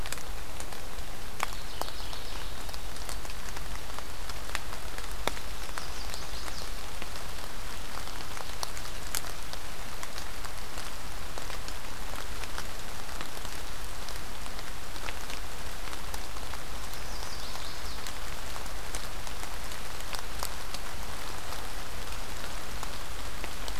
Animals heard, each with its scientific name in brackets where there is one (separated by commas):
Chestnut-sided Warbler (Setophaga pensylvanica), White-throated Sparrow (Zonotrichia albicollis), Mourning Warbler (Geothlypis philadelphia)